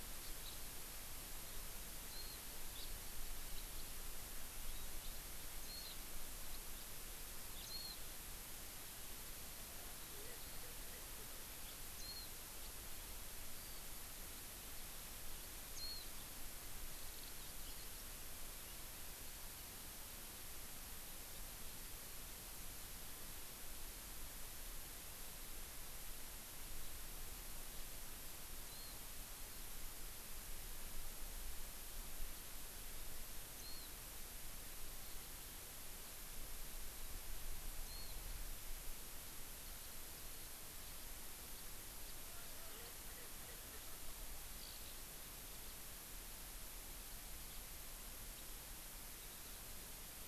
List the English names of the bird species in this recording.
Warbling White-eye, House Finch, Erckel's Francolin, Eurasian Skylark